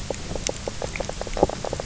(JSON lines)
{"label": "biophony, knock croak", "recorder": "SoundTrap 300"}